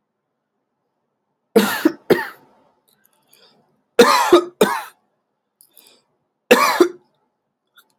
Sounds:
Cough